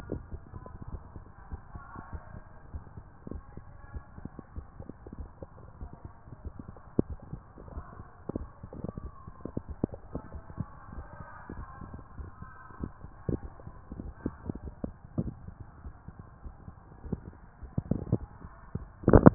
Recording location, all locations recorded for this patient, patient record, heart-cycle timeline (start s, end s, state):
tricuspid valve (TV)
aortic valve (AV)+pulmonary valve (PV)+tricuspid valve (TV)+mitral valve (MV)
#Age: nan
#Sex: Female
#Height: nan
#Weight: nan
#Pregnancy status: True
#Murmur: Absent
#Murmur locations: nan
#Most audible location: nan
#Systolic murmur timing: nan
#Systolic murmur shape: nan
#Systolic murmur grading: nan
#Systolic murmur pitch: nan
#Systolic murmur quality: nan
#Diastolic murmur timing: nan
#Diastolic murmur shape: nan
#Diastolic murmur grading: nan
#Diastolic murmur pitch: nan
#Diastolic murmur quality: nan
#Outcome: Normal
#Campaign: 2015 screening campaign
0.00	1.24	unannotated
1.24	1.49	diastole
1.49	1.59	S1
1.59	1.72	systole
1.72	1.79	S2
1.79	2.12	diastole
2.12	2.22	S1
2.22	2.32	systole
2.32	2.42	S2
2.42	2.71	diastole
2.71	2.81	S1
2.81	2.94	systole
2.94	3.02	S2
3.02	3.30	diastole
3.30	3.42	S1
3.42	3.52	systole
3.52	3.62	S2
3.62	3.94	diastole
3.94	4.03	S1
4.03	4.19	systole
4.19	4.31	S2
4.31	4.54	diastole
4.54	4.68	S1
4.68	4.78	systole
4.78	4.88	S2
4.88	5.18	diastole
5.18	5.27	S1
5.27	5.40	systole
5.40	5.47	S2
5.47	5.79	diastole
5.79	5.94	S1
5.94	6.04	systole
6.04	6.12	S2
6.12	6.42	diastole
6.42	6.53	S1
6.53	6.66	systole
6.66	6.77	S2
6.77	7.06	diastole
7.06	7.18	S1
7.18	7.30	systole
7.30	7.40	S2
7.40	7.73	diastole
7.73	7.83	S1
7.83	7.95	systole
7.95	8.05	S2
8.05	8.36	diastole
8.36	8.50	S1
8.50	8.64	systole
8.64	8.76	S2
8.76	9.02	diastole
9.02	19.34	unannotated